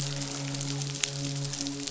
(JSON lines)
{"label": "biophony, midshipman", "recorder": "SoundTrap 500"}